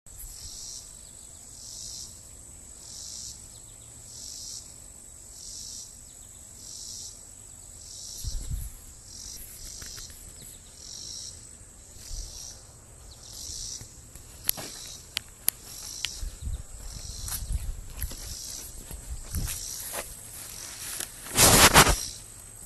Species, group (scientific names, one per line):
Neotibicen robinsonianus
Cicadidae